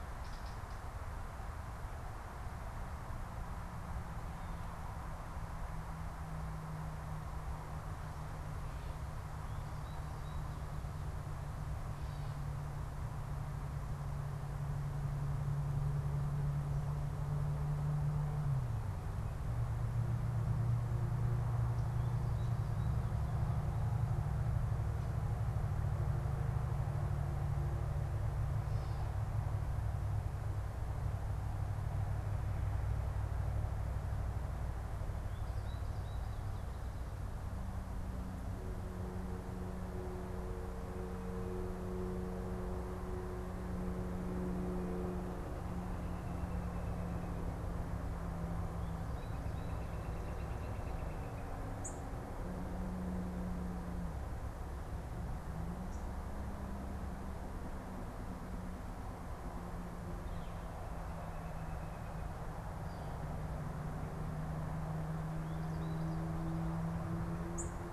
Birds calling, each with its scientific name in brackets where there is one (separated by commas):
Gray Catbird (Dumetella carolinensis), Northern Flicker (Colaptes auratus), unidentified bird, American Goldfinch (Spinus tristis), Common Yellowthroat (Geothlypis trichas)